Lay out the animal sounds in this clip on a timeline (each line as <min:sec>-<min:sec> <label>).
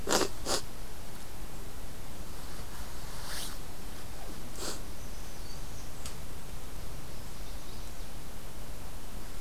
0:04.8-0:06.0 Black-throated Green Warbler (Setophaga virens)
0:07.0-0:08.2 Chestnut-sided Warbler (Setophaga pensylvanica)